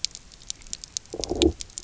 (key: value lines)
label: biophony, low growl
recorder: SoundTrap 300